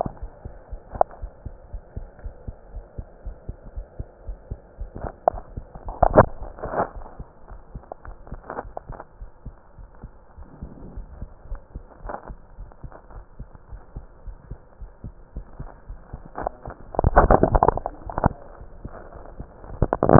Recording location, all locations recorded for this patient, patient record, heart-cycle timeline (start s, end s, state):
aortic valve (AV)
aortic valve (AV)+pulmonary valve (PV)+tricuspid valve (TV)+mitral valve (MV)
#Age: Child
#Sex: Male
#Height: 138.0 cm
#Weight: 37.4 kg
#Pregnancy status: False
#Murmur: Absent
#Murmur locations: nan
#Most audible location: nan
#Systolic murmur timing: nan
#Systolic murmur shape: nan
#Systolic murmur grading: nan
#Systolic murmur pitch: nan
#Systolic murmur quality: nan
#Diastolic murmur timing: nan
#Diastolic murmur shape: nan
#Diastolic murmur grading: nan
#Diastolic murmur pitch: nan
#Diastolic murmur quality: nan
#Outcome: Normal
#Campaign: 2015 screening campaign
0.00	0.20	unannotated
0.20	0.32	S1
0.32	0.42	systole
0.42	0.52	S2
0.52	0.72	diastole
0.72	0.80	S1
0.80	0.92	systole
0.92	1.02	S2
1.02	1.18	diastole
1.18	1.30	S1
1.30	1.42	systole
1.42	1.54	S2
1.54	1.72	diastole
1.72	1.82	S1
1.82	1.94	systole
1.94	2.08	S2
2.08	2.24	diastole
2.24	2.36	S1
2.36	2.44	systole
2.44	2.56	S2
2.56	2.74	diastole
2.74	2.86	S1
2.86	2.94	systole
2.94	3.06	S2
3.06	3.26	diastole
3.26	3.38	S1
3.38	3.46	systole
3.46	3.56	S2
3.56	3.74	diastole
3.74	3.86	S1
3.86	3.96	systole
3.96	4.08	S2
4.08	4.26	diastole
4.26	4.40	S1
4.40	4.48	systole
4.48	4.58	S2
4.58	4.78	diastole
4.78	4.92	S1
4.92	5.00	systole
5.00	5.12	S2
5.12	5.32	diastole
5.32	5.44	S1
5.44	5.52	systole
5.52	5.64	S2
5.64	5.84	diastole
5.84	5.94	S1
5.94	6.02	systole
6.02	6.18	S2
6.18	6.40	diastole
6.40	6.54	S1
6.54	6.62	systole
6.62	6.74	S2
6.74	6.94	diastole
6.94	7.08	S1
7.08	7.18	systole
7.18	7.28	S2
7.28	7.50	diastole
7.50	7.60	S1
7.60	7.74	systole
7.74	7.84	S2
7.84	8.06	diastole
8.06	8.16	S1
8.16	8.28	systole
8.28	8.42	S2
8.42	8.64	diastole
8.64	8.74	S1
8.74	8.88	systole
8.88	8.98	S2
8.98	9.20	diastole
9.20	9.30	S1
9.30	9.44	systole
9.44	9.54	S2
9.54	9.78	diastole
9.78	9.88	S1
9.88	10.02	systole
10.02	10.12	S2
10.12	20.19	unannotated